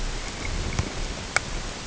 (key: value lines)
label: ambient
recorder: HydroMoth